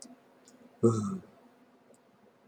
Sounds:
Sigh